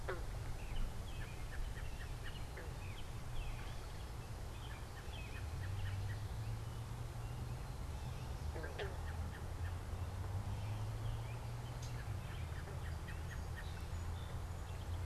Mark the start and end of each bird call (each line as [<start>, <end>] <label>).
[0.00, 15.05] American Robin (Turdus migratorius)
[7.67, 8.56] Gray Catbird (Dumetella carolinensis)
[11.66, 12.06] Gray Catbird (Dumetella carolinensis)
[12.96, 15.05] Song Sparrow (Melospiza melodia)